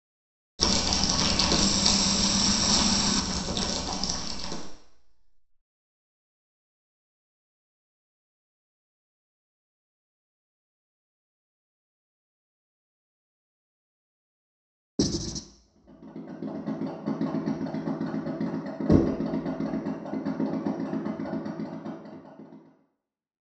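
From 15.54 to 22.95 seconds, an engine idles, fading in and then fading out. At 0.59 seconds, you can hear crumpling. Over it, at 1.57 seconds, comes the sound of a water tap. Then at 14.98 seconds, writing is heard. Next, at 18.89 seconds, there is knocking.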